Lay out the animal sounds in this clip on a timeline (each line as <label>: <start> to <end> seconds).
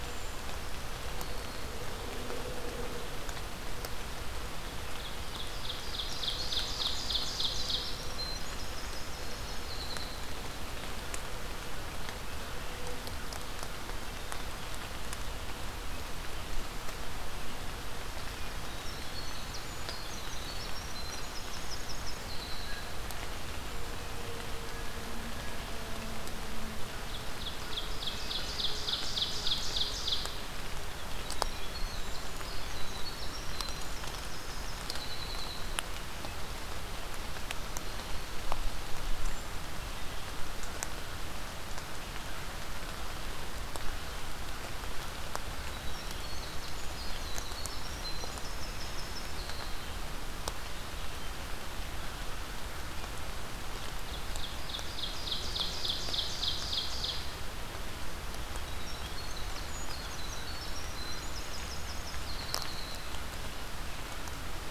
Brown Creeper (Certhia americana): 0.0 to 0.4 seconds
Black-throated Green Warbler (Setophaga virens): 0.8 to 2.1 seconds
Ovenbird (Seiurus aurocapilla): 4.8 to 8.2 seconds
Winter Wren (Troglodytes hiemalis): 7.9 to 10.4 seconds
Winter Wren (Troglodytes hiemalis): 18.3 to 23.0 seconds
Ovenbird (Seiurus aurocapilla): 26.7 to 30.4 seconds
Winter Wren (Troglodytes hiemalis): 31.0 to 35.9 seconds
Black-throated Green Warbler (Setophaga virens): 37.4 to 38.7 seconds
Brown Creeper (Certhia americana): 39.2 to 39.6 seconds
Winter Wren (Troglodytes hiemalis): 45.3 to 50.0 seconds
Ovenbird (Seiurus aurocapilla): 53.9 to 57.7 seconds
Winter Wren (Troglodytes hiemalis): 58.7 to 63.2 seconds